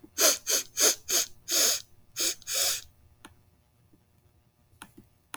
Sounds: Sniff